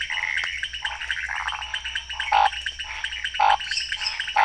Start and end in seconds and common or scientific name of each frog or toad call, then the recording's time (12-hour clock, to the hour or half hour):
0.0	0.9	Pithecopus azureus
0.0	4.4	pointedbelly frog
1.3	1.8	waxy monkey tree frog
2.3	4.4	Scinax fuscovarius
3.5	4.3	lesser tree frog
11pm